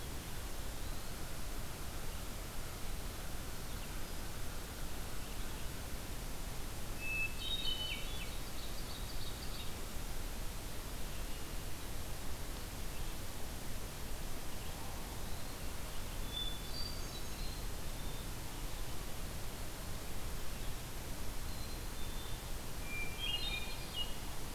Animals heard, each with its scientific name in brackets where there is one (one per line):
Eastern Wood-Pewee (Contopus virens)
Hermit Thrush (Catharus guttatus)
Black-capped Chickadee (Poecile atricapillus)
Ovenbird (Seiurus aurocapilla)